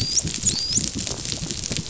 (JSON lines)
{"label": "biophony, dolphin", "recorder": "SoundTrap 500"}